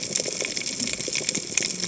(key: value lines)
label: biophony, cascading saw
recorder: HydroMoth